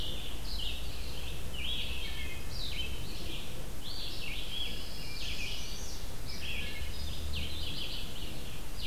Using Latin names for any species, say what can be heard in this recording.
Vireo olivaceus, Hylocichla mustelina, Setophaga pinus